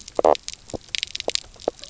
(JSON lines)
{"label": "biophony, knock croak", "recorder": "SoundTrap 300"}